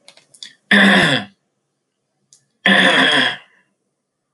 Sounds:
Throat clearing